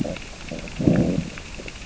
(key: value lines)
label: biophony, growl
recorder: SoundTrap 600 or HydroMoth